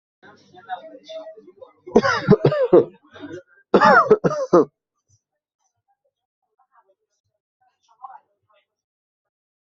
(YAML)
expert_labels:
- quality: good
  cough_type: dry
  dyspnea: false
  wheezing: false
  stridor: false
  choking: false
  congestion: false
  nothing: true
  diagnosis: upper respiratory tract infection
  severity: mild
age: 26
gender: male
respiratory_condition: false
fever_muscle_pain: false
status: COVID-19